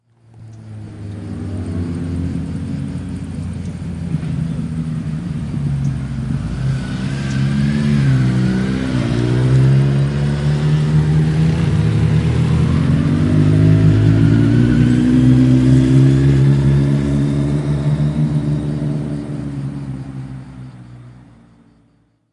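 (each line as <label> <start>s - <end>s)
A motorcycle passes by, gradually increasing in volume and then fading away. 0.0s - 22.3s
Birds singing in a steady pattern. 0.0s - 22.3s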